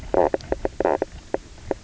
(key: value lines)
label: biophony, knock croak
recorder: SoundTrap 300